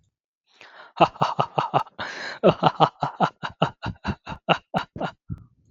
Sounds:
Laughter